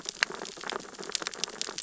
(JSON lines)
{"label": "biophony, sea urchins (Echinidae)", "recorder": "SoundTrap 600 or HydroMoth"}